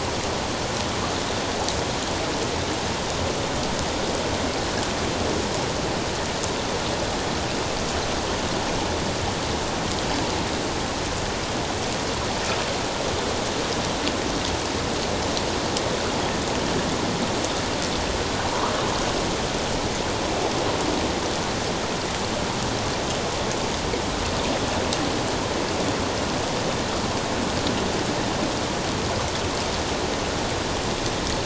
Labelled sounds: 18.5	18.7	water noise, 0.91 to 1.3 kHz

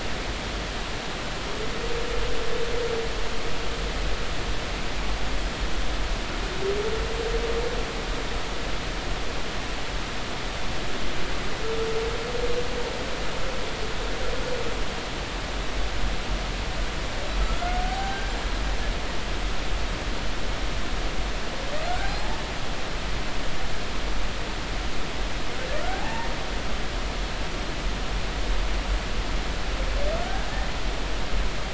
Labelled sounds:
17.8	18.2	humpback whale, 0.80 to 0.83 kHz
21.9	22.4	humpback whale, 0.80 to 1.6 kHz
25.8	26.3	humpback whale, 0.80 to 1.9 kHz

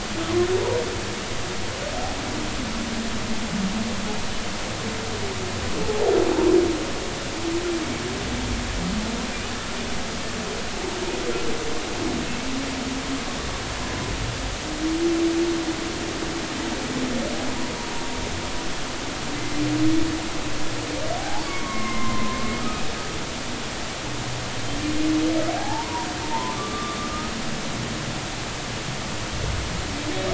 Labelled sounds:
5.8	6.1	humpback whale, 0.80 to 0.96 kHz
19.4	19.6	humpback whale, 2.0 to 2.1 kHz
21.2	22.8	humpback whale, 0.80 to 2.3 kHz
25.6	27.0	humpback whale, 0.80 to 1.2 kHz

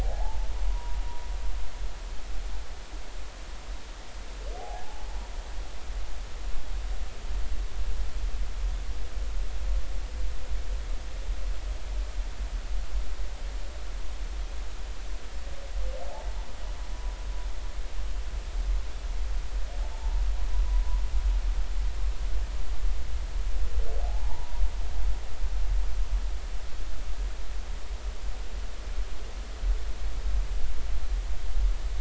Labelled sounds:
0.0	1.0	humpback whale, 0.80 to 1.1 kHz
4.6	4.8	humpback whale, 0.80 to 0.90 kHz
19.8	20.1	humpback whale, 0.83 to 0.99 kHz
24.0	24.6	humpback whale, 0.80 to 0.99 kHz

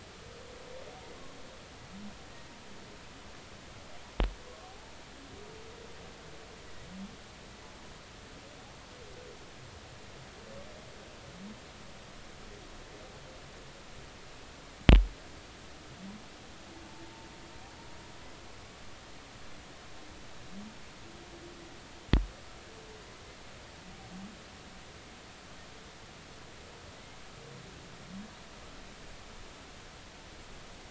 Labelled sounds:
4.6	5.0	humpback whale, 0.80 to 0.93 kHz

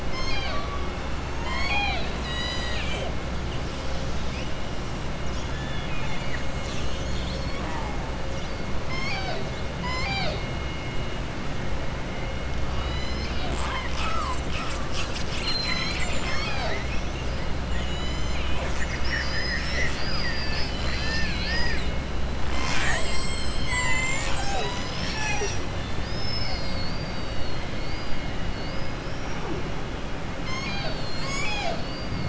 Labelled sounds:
0.0	0.8	killer whale, southern resident, 0.70 to 6.5 kHz
1.3	3.1	killer whale, southern resident, 0.68 to 7.9 kHz
5.5	6.4	killer whale, southern resident, 0.93 to 4.2 kHz
9.7	10.4	killer whale, southern resident, 0.56 to 7.9 kHz
25.8	28.1	killer whale, southern resident, 3.5 to 5.3 kHz
29.0	29.4	killer whale, southern resident, 5.3 to 5.7 kHz

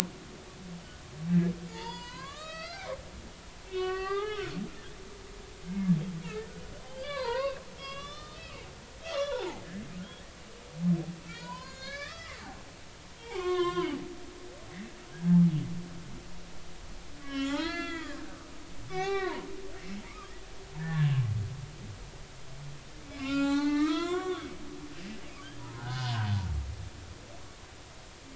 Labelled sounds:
1.7	3.2	humpback whale, 0.83 to 5.9 kHz
3.7	4.5	humpback whale, 0.80 to 4.8 kHz
5.7	5.9	humpback whale, 2.0 to 2.2 kHz
6.9	8.6	humpback whale, 0.86 to 6.4 kHz
9.0	9.6	humpback whale, 0.80 to 4.2 kHz
11.3	12.4	humpback whale, 0.86 to 7.0 kHz
13.0	14.0	humpback whale, 0.96 to 6.1 kHz
17.2	18.2	humpback whale, 0.80 to 5.7 kHz
18.9	19.5	humpback whale, 0.80 to 5.6 kHz
20.8	21.1	humpback whale, 1.5 to 1.9 kHz
23.0	24.5	humpback whale, 0.80 to 7.7 kHz
25.6	26.2	humpback whale, 0.80 to 1.7 kHz

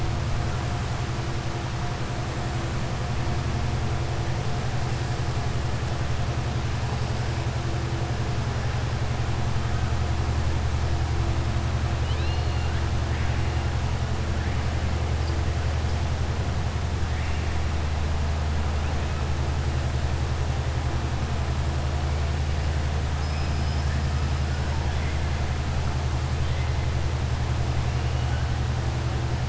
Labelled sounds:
11.9	12.8	killer whale, southern resident, 2.5 to 4.3 kHz
23.1	23.9	killer whale, southern resident, 5.0 to 5.8 kHz

